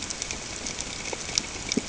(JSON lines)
{"label": "ambient", "recorder": "HydroMoth"}